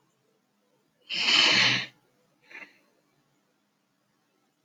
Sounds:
Sigh